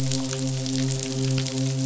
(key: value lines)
label: biophony, midshipman
recorder: SoundTrap 500